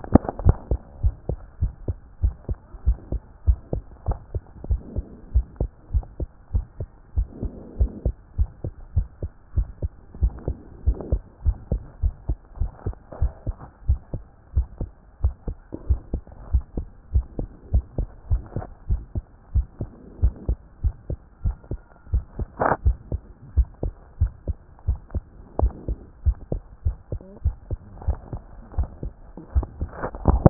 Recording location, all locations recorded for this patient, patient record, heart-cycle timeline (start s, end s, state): tricuspid valve (TV)
aortic valve (AV)+pulmonary valve (PV)+tricuspid valve (TV)+mitral valve (MV)
#Age: Child
#Sex: Male
#Height: 115.0 cm
#Weight: 19.8 kg
#Pregnancy status: False
#Murmur: Absent
#Murmur locations: nan
#Most audible location: nan
#Systolic murmur timing: nan
#Systolic murmur shape: nan
#Systolic murmur grading: nan
#Systolic murmur pitch: nan
#Systolic murmur quality: nan
#Diastolic murmur timing: nan
#Diastolic murmur shape: nan
#Diastolic murmur grading: nan
#Diastolic murmur pitch: nan
#Diastolic murmur quality: nan
#Outcome: Abnormal
#Campaign: 2014 screening campaign
0.00	1.02	unannotated
1.02	1.14	S1
1.14	1.28	systole
1.28	1.38	S2
1.38	1.60	diastole
1.60	1.72	S1
1.72	1.86	systole
1.86	1.96	S2
1.96	2.22	diastole
2.22	2.34	S1
2.34	2.48	systole
2.48	2.58	S2
2.58	2.86	diastole
2.86	2.98	S1
2.98	3.12	systole
3.12	3.20	S2
3.20	3.46	diastole
3.46	3.58	S1
3.58	3.74	systole
3.74	3.84	S2
3.84	4.06	diastole
4.06	4.18	S1
4.18	4.34	systole
4.34	4.42	S2
4.42	4.68	diastole
4.68	4.80	S1
4.80	4.96	systole
4.96	5.04	S2
5.04	5.34	diastole
5.34	5.46	S1
5.46	5.60	systole
5.60	5.70	S2
5.70	5.94	diastole
5.94	6.04	S1
6.04	6.20	systole
6.20	6.28	S2
6.28	6.54	diastole
6.54	6.64	S1
6.64	6.78	systole
6.78	6.88	S2
6.88	7.16	diastole
7.16	7.28	S1
7.28	7.42	systole
7.42	7.52	S2
7.52	7.78	diastole
7.78	7.90	S1
7.90	8.04	systole
8.04	8.14	S2
8.14	8.38	diastole
8.38	8.50	S1
8.50	8.64	systole
8.64	8.72	S2
8.72	8.96	diastole
8.96	9.08	S1
9.08	9.22	systole
9.22	9.30	S2
9.30	9.56	diastole
9.56	9.68	S1
9.68	9.82	systole
9.82	9.90	S2
9.90	10.20	diastole
10.20	10.32	S1
10.32	10.46	systole
10.46	10.56	S2
10.56	10.86	diastole
10.86	10.98	S1
10.98	11.12	systole
11.12	11.22	S2
11.22	11.44	diastole
11.44	11.56	S1
11.56	11.70	systole
11.70	11.82	S2
11.82	12.02	diastole
12.02	12.14	S1
12.14	12.28	systole
12.28	12.38	S2
12.38	12.60	diastole
12.60	12.70	S1
12.70	12.86	systole
12.86	12.94	S2
12.94	13.20	diastole
13.20	13.32	S1
13.32	13.46	systole
13.46	13.56	S2
13.56	13.88	diastole
13.88	14.00	S1
14.00	14.14	systole
14.14	14.22	S2
14.22	14.56	diastole
14.56	14.66	S1
14.66	14.80	systole
14.80	14.90	S2
14.90	15.22	diastole
15.22	15.34	S1
15.34	15.48	systole
15.48	15.56	S2
15.56	15.88	diastole
15.88	16.00	S1
16.00	16.12	systole
16.12	16.22	S2
16.22	16.52	diastole
16.52	16.64	S1
16.64	16.76	systole
16.76	16.86	S2
16.86	17.14	diastole
17.14	17.26	S1
17.26	17.38	systole
17.38	17.48	S2
17.48	17.72	diastole
17.72	17.84	S1
17.84	17.98	systole
17.98	18.08	S2
18.08	18.30	diastole
18.30	18.42	S1
18.42	18.56	systole
18.56	18.64	S2
18.64	18.88	diastole
18.88	19.02	S1
19.02	19.14	systole
19.14	19.24	S2
19.24	19.54	diastole
19.54	19.66	S1
19.66	19.80	systole
19.80	19.88	S2
19.88	20.22	diastole
20.22	20.34	S1
20.34	20.48	systole
20.48	20.58	S2
20.58	20.84	diastole
20.84	20.94	S1
20.94	21.10	systole
21.10	21.18	S2
21.18	21.44	diastole
21.44	21.56	S1
21.56	21.70	systole
21.70	21.80	S2
21.80	22.12	diastole
22.12	22.24	S1
22.24	22.38	systole
22.38	22.48	S2
22.48	22.84	diastole
22.84	22.96	S1
22.96	23.12	systole
23.12	23.20	S2
23.20	23.56	diastole
23.56	23.68	S1
23.68	23.84	systole
23.84	23.92	S2
23.92	24.20	diastole
24.20	24.32	S1
24.32	24.48	systole
24.48	24.56	S2
24.56	24.88	diastole
24.88	24.98	S1
24.98	25.14	systole
25.14	25.24	S2
25.24	25.60	diastole
25.60	25.72	S1
25.72	25.88	systole
25.88	25.98	S2
25.98	26.26	diastole
26.26	26.36	S1
26.36	26.52	systole
26.52	26.62	S2
26.62	26.84	diastole
26.84	26.96	S1
26.96	27.12	systole
27.12	27.20	S2
27.20	27.44	diastole
27.44	27.56	S1
27.56	27.70	systole
27.70	27.78	S2
27.78	28.06	diastole
28.06	28.18	S1
28.18	28.32	systole
28.32	28.42	S2
28.42	28.76	diastole
28.76	28.88	S1
28.88	29.04	systole
29.04	29.12	S2
29.12	29.54	diastole
29.54	30.50	unannotated